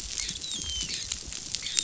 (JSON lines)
{"label": "biophony, dolphin", "recorder": "SoundTrap 500"}